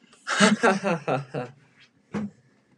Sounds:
Laughter